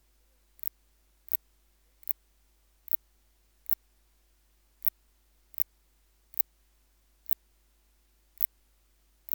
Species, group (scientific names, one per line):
Phaneroptera nana
Orthoptera